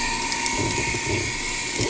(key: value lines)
label: anthrophony, boat engine
recorder: HydroMoth